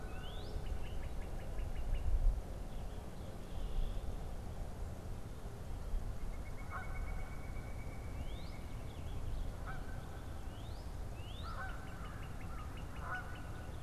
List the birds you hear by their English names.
Northern Cardinal, unidentified bird, Pileated Woodpecker, Canada Goose, American Crow